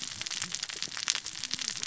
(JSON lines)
{"label": "biophony, cascading saw", "recorder": "SoundTrap 600 or HydroMoth"}